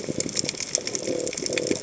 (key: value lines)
label: biophony
recorder: HydroMoth